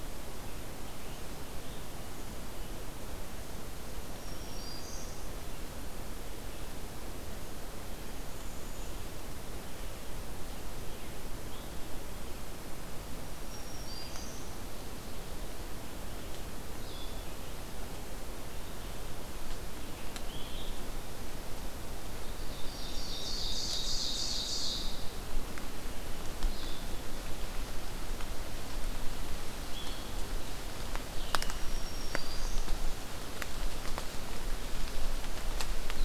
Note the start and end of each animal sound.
[4.03, 5.29] Black-throated Green Warbler (Setophaga virens)
[7.99, 9.01] Black-capped Chickadee (Poecile atricapillus)
[13.28, 14.55] Black-throated Green Warbler (Setophaga virens)
[16.74, 36.04] Red-eyed Vireo (Vireo olivaceus)
[22.39, 25.15] Ovenbird (Seiurus aurocapilla)
[31.52, 32.76] Black-throated Green Warbler (Setophaga virens)

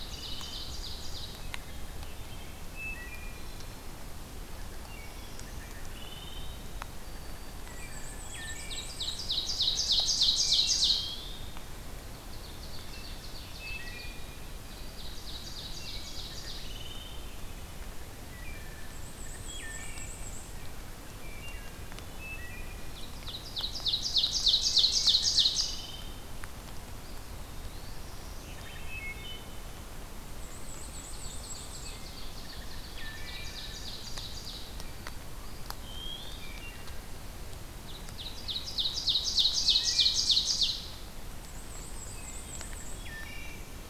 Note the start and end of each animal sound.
[0.00, 0.86] Wood Thrush (Hylocichla mustelina)
[0.00, 1.45] Ovenbird (Seiurus aurocapilla)
[1.43, 3.62] Wood Thrush (Hylocichla mustelina)
[4.53, 6.82] Wood Thrush (Hylocichla mustelina)
[4.61, 5.77] Black-throated Blue Warbler (Setophaga caerulescens)
[6.44, 8.25] White-throated Sparrow (Zonotrichia albicollis)
[7.09, 9.09] Wood Thrush (Hylocichla mustelina)
[7.51, 9.27] Black-and-white Warbler (Mniotilta varia)
[7.95, 11.12] Ovenbird (Seiurus aurocapilla)
[10.30, 11.53] Wood Thrush (Hylocichla mustelina)
[11.85, 14.21] Ovenbird (Seiurus aurocapilla)
[12.56, 14.32] Wood Thrush (Hylocichla mustelina)
[14.40, 16.34] White-throated Sparrow (Zonotrichia albicollis)
[14.65, 16.63] Ovenbird (Seiurus aurocapilla)
[15.42, 17.35] Wood Thrush (Hylocichla mustelina)
[18.19, 20.27] Wood Thrush (Hylocichla mustelina)
[18.74, 20.64] Black-and-white Warbler (Mniotilta varia)
[21.20, 21.73] Wood Thrush (Hylocichla mustelina)
[22.11, 22.87] Wood Thrush (Hylocichla mustelina)
[22.90, 25.95] Ovenbird (Seiurus aurocapilla)
[24.53, 26.34] Wood Thrush (Hylocichla mustelina)
[26.98, 27.99] Eastern Wood-Pewee (Contopus virens)
[27.72, 28.66] Black-throated Blue Warbler (Setophaga caerulescens)
[28.58, 29.60] Wood Thrush (Hylocichla mustelina)
[30.17, 32.09] Black-and-white Warbler (Mniotilta varia)
[30.68, 34.79] Ovenbird (Seiurus aurocapilla)
[31.66, 33.95] Wood Thrush (Hylocichla mustelina)
[34.58, 35.33] White-throated Sparrow (Zonotrichia albicollis)
[35.32, 36.63] Eastern Wood-Pewee (Contopus virens)
[35.54, 37.06] Wood Thrush (Hylocichla mustelina)
[37.53, 40.95] Ovenbird (Seiurus aurocapilla)
[39.48, 40.35] Wood Thrush (Hylocichla mustelina)
[41.32, 43.16] Black-and-white Warbler (Mniotilta varia)
[41.58, 42.65] Eastern Wood-Pewee (Contopus virens)
[41.93, 42.51] Wood Thrush (Hylocichla mustelina)
[42.92, 43.89] Wood Thrush (Hylocichla mustelina)

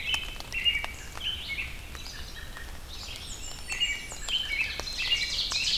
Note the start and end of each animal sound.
[0.00, 1.66] American Robin (Turdus migratorius)
[0.00, 5.77] Red-eyed Vireo (Vireo olivaceus)
[1.92, 2.74] American Robin (Turdus migratorius)
[2.99, 4.42] Blackburnian Warbler (Setophaga fusca)
[3.38, 5.77] American Robin (Turdus migratorius)
[4.61, 5.77] Ovenbird (Seiurus aurocapilla)

